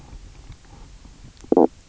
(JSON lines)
{"label": "biophony, knock croak", "recorder": "SoundTrap 300"}